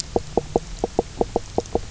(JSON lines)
{"label": "biophony, knock croak", "recorder": "SoundTrap 300"}